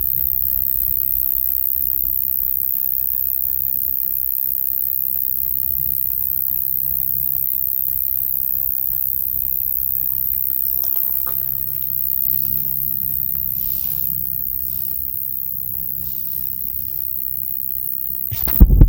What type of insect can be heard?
orthopteran